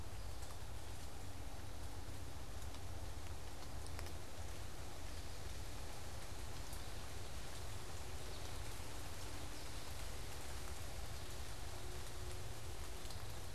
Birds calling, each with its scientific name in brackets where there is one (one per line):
American Goldfinch (Spinus tristis)